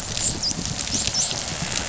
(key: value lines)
label: biophony, dolphin
recorder: SoundTrap 500